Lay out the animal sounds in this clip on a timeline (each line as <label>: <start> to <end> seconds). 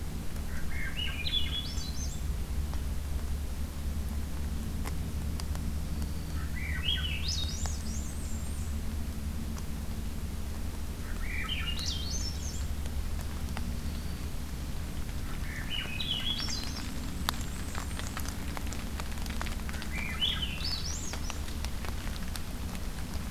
Swainson's Thrush (Catharus ustulatus): 0.5 to 2.3 seconds
Black-throated Green Warbler (Setophaga virens): 5.8 to 6.5 seconds
Swainson's Thrush (Catharus ustulatus): 6.3 to 7.9 seconds
Blackburnian Warbler (Setophaga fusca): 7.7 to 8.8 seconds
Swainson's Thrush (Catharus ustulatus): 11.0 to 12.7 seconds
Black-throated Green Warbler (Setophaga virens): 13.8 to 14.4 seconds
Swainson's Thrush (Catharus ustulatus): 15.4 to 17.0 seconds
Blackburnian Warbler (Setophaga fusca): 16.9 to 18.2 seconds
Swainson's Thrush (Catharus ustulatus): 19.6 to 21.3 seconds